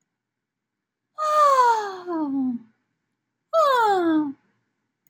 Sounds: Sigh